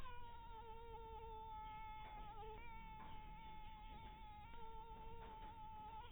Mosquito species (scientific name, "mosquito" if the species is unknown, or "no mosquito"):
mosquito